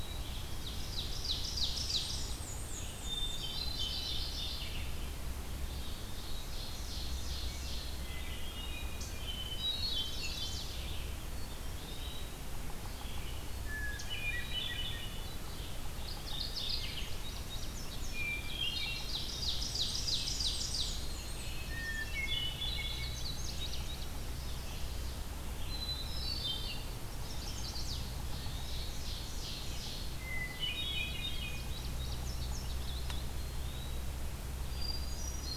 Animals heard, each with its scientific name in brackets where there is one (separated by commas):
Red-eyed Vireo (Vireo olivaceus), Indigo Bunting (Passerina cyanea), Hermit Thrush (Catharus guttatus), Black-and-white Warbler (Mniotilta varia), Chestnut-sided Warbler (Setophaga pensylvanica), Ovenbird (Seiurus aurocapilla), Eastern Wood-Pewee (Contopus virens), Mourning Warbler (Geothlypis philadelphia)